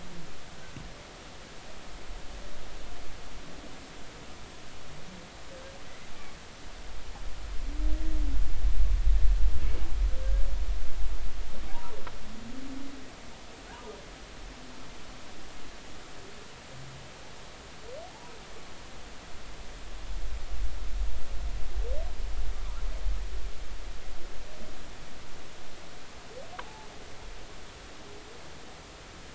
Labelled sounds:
18.1	18.3	humpback whale, 0.80 to 1.1 kHz
26.6	26.9	humpback whale, 0.80 to 0.93 kHz

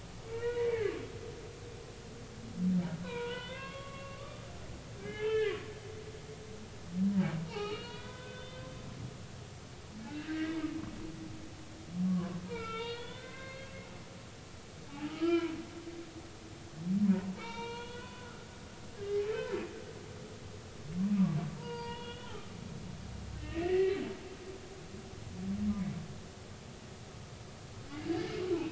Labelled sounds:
0.3	0.9	humpback whale, 1.3 to 2.5 kHz
3.0	4.5	humpback whale, 0.90 to 4.1 kHz
5.0	5.6	humpback whale, 0.80 to 3.2 kHz
7.5	8.7	humpback whale, 0.80 to 4.4 kHz
10.2	10.7	humpback whale, 1.5 to 2.3 kHz
12.1	13.7	humpback whale, 0.96 to 3.8 kHz
15.1	15.5	humpback whale, 0.93 to 4.5 kHz
17.4	18.4	humpback whale, 0.86 to 4.3 kHz
19.2	19.5	humpback whale, 2.5 to 2.7 kHz
21.6	22.5	humpback whale, 0.86 to 4.9 kHz
23.4	24.0	humpback whale, 1.8 to 2.8 kHz

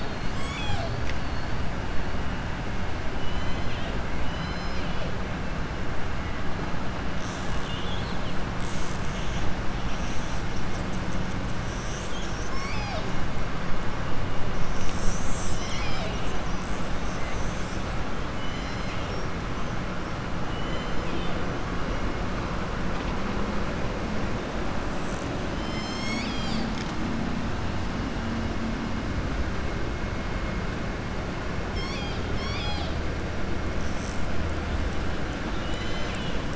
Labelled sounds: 3.1	5.0	killer whale, southern resident, 1.9 to 6.2 kHz
7.5	8.4	killer whale, southern resident, 2.8 to 4.4 kHz
18.3	19.1	killer whale, southern resident, 2.0 to 6.1 kHz
20.4	21.4	killer whale, southern resident, 2.0 to 4.1 kHz
31.6	33.0	killer whale, southern resident, 1.1 to 7.6 kHz

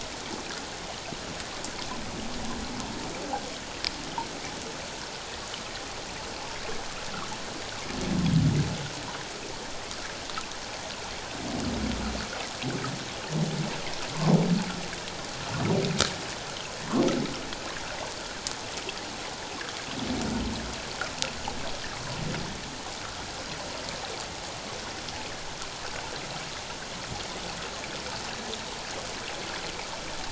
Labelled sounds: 21.9	22.2	humpback whale, 0.94 to 1.4 kHz

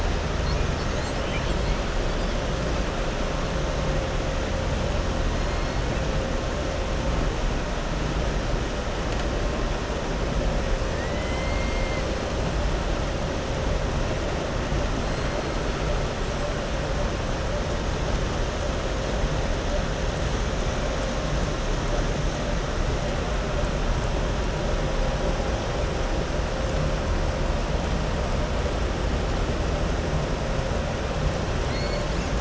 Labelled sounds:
0.7	1.8	killer whale, southern resident, 2.0 to 7.9 kHz
10.9	11.6	killer whale, southern resident, 1.7 to 3.1 kHz

